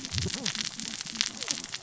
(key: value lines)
label: biophony, cascading saw
recorder: SoundTrap 600 or HydroMoth